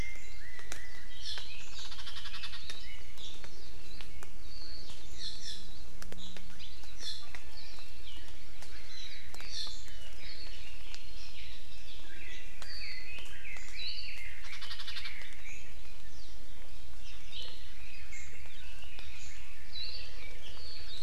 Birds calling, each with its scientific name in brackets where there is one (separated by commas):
Apapane (Himatione sanguinea), Hawaii Akepa (Loxops coccineus), Chinese Hwamei (Garrulax canorus), Omao (Myadestes obscurus)